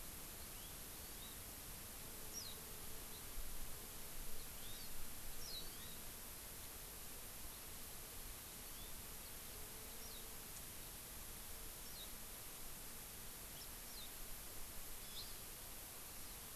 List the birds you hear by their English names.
House Finch, Hawaii Amakihi, Warbling White-eye